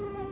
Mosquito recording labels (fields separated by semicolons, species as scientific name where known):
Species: Anopheles quadriannulatus; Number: one; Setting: insect culture